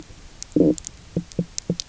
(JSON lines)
{"label": "biophony, knock croak", "recorder": "SoundTrap 300"}